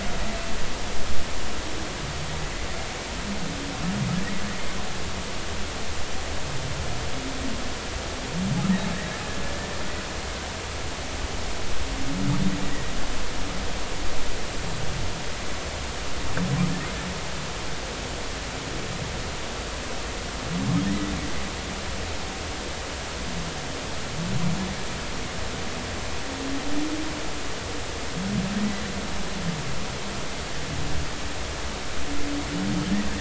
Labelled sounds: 12.7	12.9	humpback whale, 1.8 to 2.0 kHz
20.9	21.1	humpback whale, 1.8 to 2.0 kHz

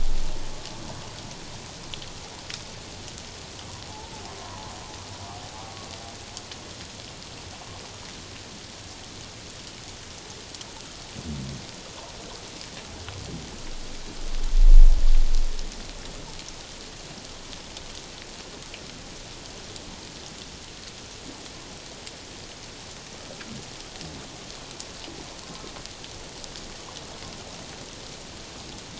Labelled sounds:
3.8	4.1	humpback whale, 0.81 to 0.97 kHz

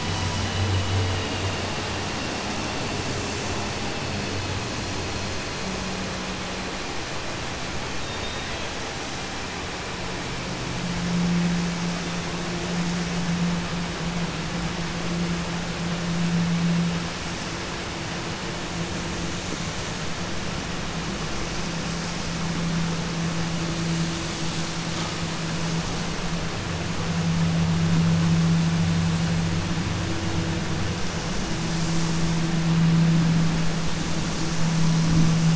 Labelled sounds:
8.0	8.7	killer whale, 2.6 to 4.6 kHz

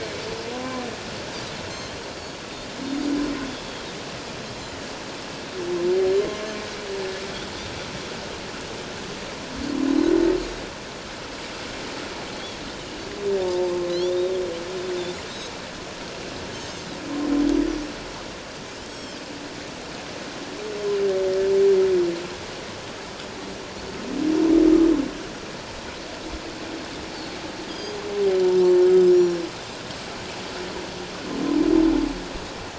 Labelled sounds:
13.4	13.7	humpback whale, 0.84 to 0.94 kHz
13.9	14.4	Pacific white-sided dolphin, 2.9 to 3.8 kHz
16.5	16.9	Pacific white-sided dolphin, 2.8 to 6.6 kHz
18.9	19.2	Pacific white-sided dolphin, 3.0 to 7.8 kHz
27.1	28.0	Pacific white-sided dolphin, 3.2 to 5.1 kHz
29.1	29.4	Pacific white-sided dolphin, 5.3 to 7.2 kHz

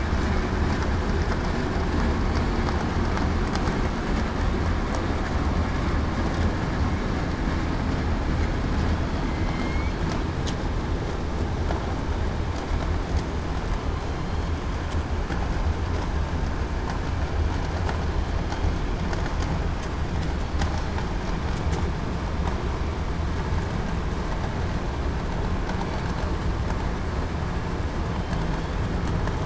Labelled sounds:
9.2	9.9	killer whale, southern resident, 2.0 to 2.4 kHz

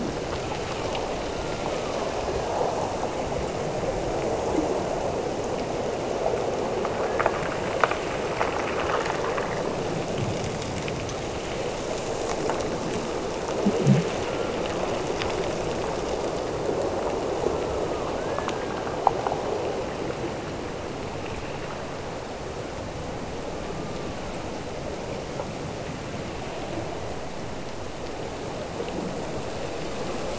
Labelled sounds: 0.3	1.0	killer whale, Bigg's (transient), Gulf of Alaska transient, 0.95 to 1.5 kHz
1.3	2.2	killer whale, Bigg's (transient), Gulf of Alaska transient, 0.88 to 1.5 kHz
18.2	19.4	killer whale, Bigg's (transient), Gulf of Alaska transient, 1.3 to 1.8 kHz

